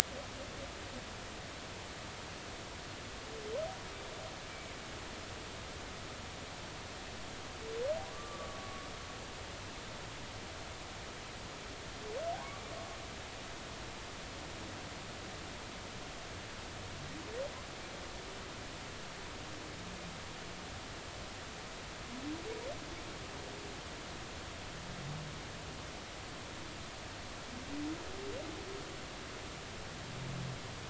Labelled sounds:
8.1	8.9	humpback whale, 1.1 to 1.5 kHz

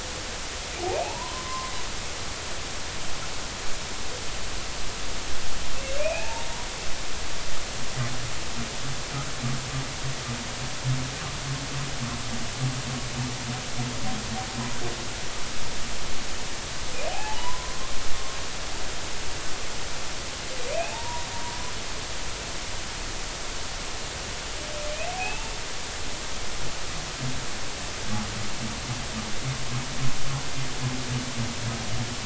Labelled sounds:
0.8	1.7	humpback whale, 0.80 to 1.2 kHz
6.0	6.7	humpback whale, 0.80 to 2.7 kHz
17.1	17.7	humpback whale, 0.80 to 1.1 kHz
20.8	21.3	humpback whale, 0.80 to 1.0 kHz
25.1	25.5	humpback whale, 0.80 to 2.8 kHz

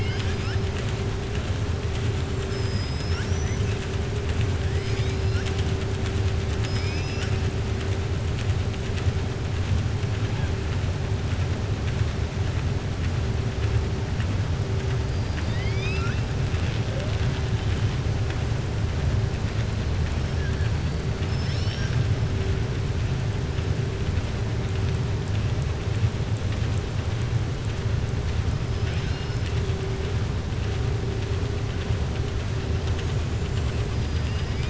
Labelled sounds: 15.1	16.2	killer whale, southern resident, 1.3 to 6.3 kHz
20.3	20.7	killer whale, southern resident, 1.6 to 2.5 kHz
21.2	22.0	killer whale, southern resident, 1.6 to 6.6 kHz
28.7	29.6	killer whale, southern resident, 1.5 to 6.1 kHz
33.3	34.0	killer whale, southern resident, 6.5 to 8.0 kHz

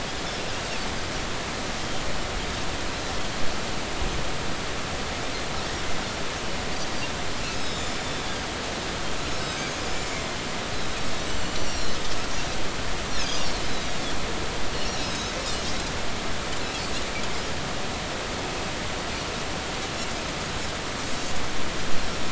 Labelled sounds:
7.4	8.1	Pacific white-sided dolphin, 3.4 to 7.0 kHz
9.3	10.2	Pacific white-sided dolphin, 4.9 to 7.2 kHz
11.6	11.9	Pacific white-sided dolphin, 5.5 to 5.7 kHz
13.2	13.9	Pacific white-sided dolphin, 3.8 to 6.7 kHz
14.7	15.3	Pacific white-sided dolphin, 3.8 to 6.5 kHz
21.1	21.4	Pacific white-sided dolphin, 6.4 to 7.4 kHz

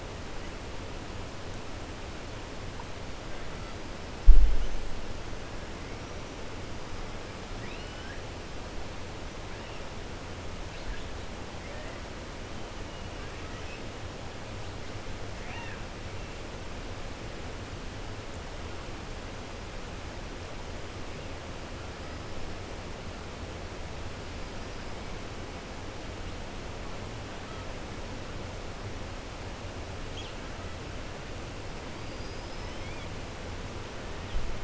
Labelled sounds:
15.3	15.8	killer whale, 0.75 to 3.7 kHz
32.0	32.8	killer whale, 4.7 to 5.9 kHz

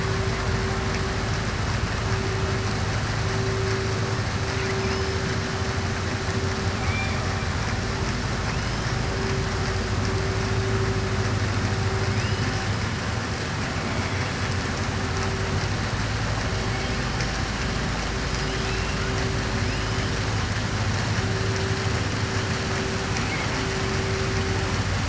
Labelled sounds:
6.7	7.2	killer whale, southern resident, 2.1 to 3.6 kHz
18.2	19.0	killer whale, southern resident, 2.5 to 6.0 kHz
23.1	23.6	killer whale, southern resident, 1.6 to 3.2 kHz

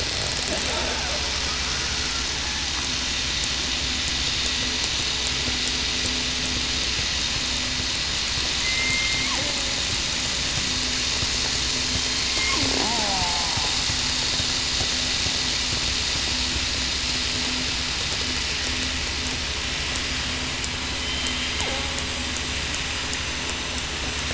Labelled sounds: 8.6	9.3	killer whale, southern resident, 2.0 to 2.3 kHz
11.8	12.2	killer whale, southern resident, 3.1 to 3.2 kHz
12.8	13.3	killer whale, southern resident, 0.68 to 0.96 kHz
21.0	21.3	killer whale, southern resident, 3.0 to 3.1 kHz

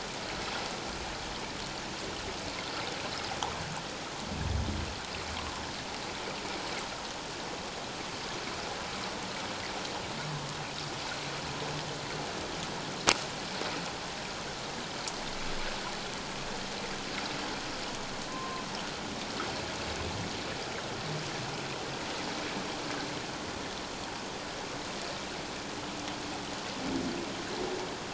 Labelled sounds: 18.3	18.6	humpback whale, 1.0 to 1.1 kHz

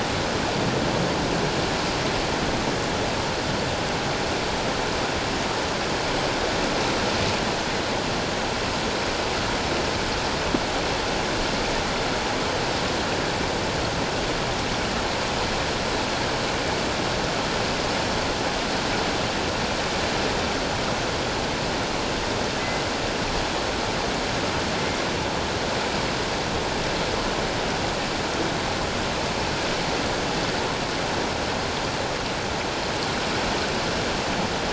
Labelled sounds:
22.6	22.8	killer whale, 2.0 to 2.1 kHz

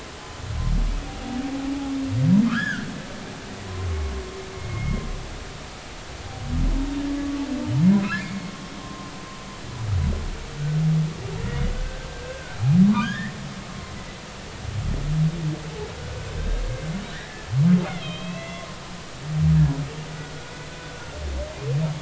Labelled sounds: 1.0	1.4	humpback whale, 0.80 to 0.83 kHz
2.4	2.9	humpback whale, 1.1 to 3.5 kHz
4.5	5.0	humpback whale, 2.1 to 2.2 kHz
7.9	9.1	humpback whale, 0.96 to 2.5 kHz
11.7	12.6	humpback whale, 1.3 to 1.7 kHz
12.9	13.4	humpback whale, 0.86 to 3.4 kHz
16.3	16.6	humpback whale, 1.5 to 3.8 kHz
17.1	18.7	humpback whale, 1.6 to 4.0 kHz
20.9	21.2	humpback whale, 1.4 to 1.5 kHz

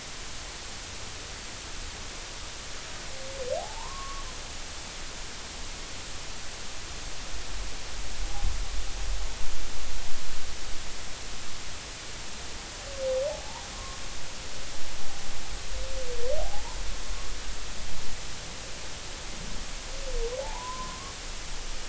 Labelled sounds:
3.6	4.3	humpback whale, 0.80 to 1.2 kHz
13.3	14.0	humpback whale, 0.80 to 1.1 kHz
16.4	16.8	humpback whale, 0.80 to 1.1 kHz
20.4	21.1	humpback whale, 0.80 to 1.2 kHz

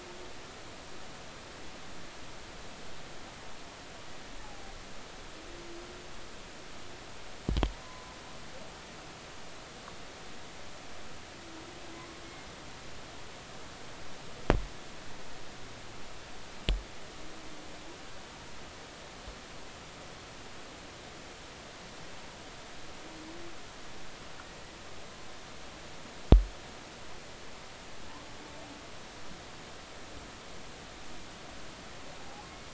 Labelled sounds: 4.4	4.7	humpback whale, 0.80 to 0.90 kHz
7.8	8.1	humpback whale, 0.96 to 1.1 kHz
32.2	32.5	humpback whale, 0.80 to 0.90 kHz

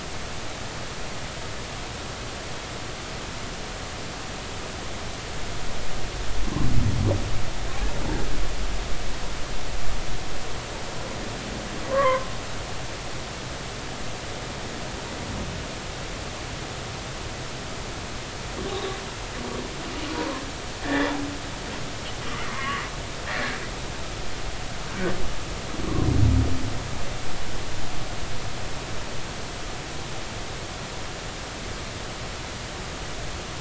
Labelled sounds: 11.9	12.3	humpback whale, 0.96 to 1.2 kHz
18.7	18.9	humpback whale, 3.5 to 3.8 kHz
20.1	21.1	humpback whale, 0.93 to 2.0 kHz
22.5	22.9	humpback whale, 1.0 to 1.2 kHz
23.3	23.6	humpback whale, 1.6 to 2.0 kHz

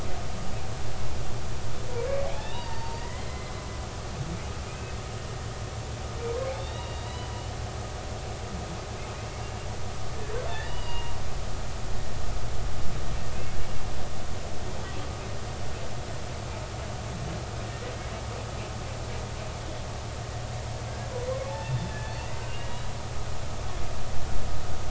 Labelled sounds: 2.2	3.5	humpback whale, 0.80 to 3.7 kHz
4.7	4.9	humpback whale, 2.4 to 2.6 kHz
6.5	7.3	humpback whale, 2.7 to 3.9 kHz
10.5	11.1	humpback whale, 0.90 to 3.0 kHz
21.7	22.9	humpback whale, 1.7 to 3.6 kHz

